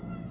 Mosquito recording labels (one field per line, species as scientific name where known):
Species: Aedes albopictus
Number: one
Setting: insect culture